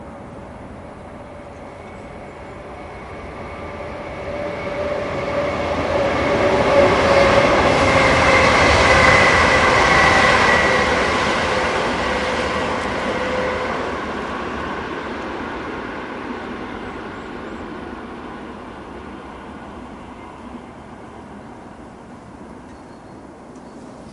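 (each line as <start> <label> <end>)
0.0 A train passes by, first increasing and then decreasing in volume. 24.1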